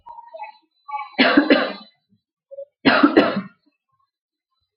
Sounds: Cough